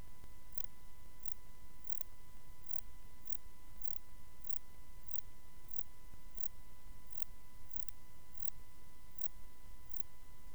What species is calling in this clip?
Metrioptera saussuriana